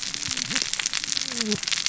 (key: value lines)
label: biophony, cascading saw
recorder: SoundTrap 600 or HydroMoth